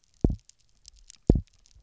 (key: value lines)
label: biophony, double pulse
recorder: SoundTrap 300